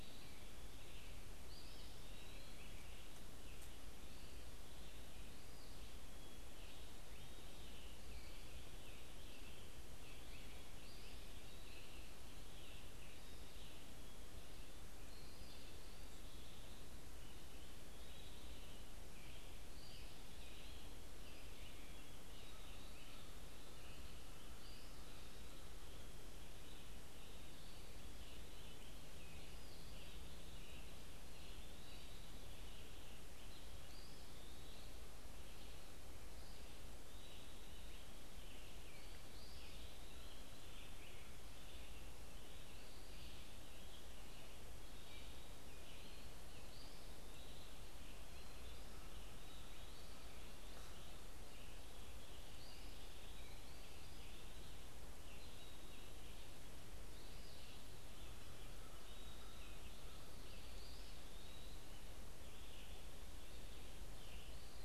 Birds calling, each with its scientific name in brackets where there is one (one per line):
Red-eyed Vireo (Vireo olivaceus)
Eastern Wood-Pewee (Contopus virens)
unidentified bird